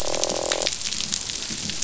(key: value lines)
label: biophony, croak
recorder: SoundTrap 500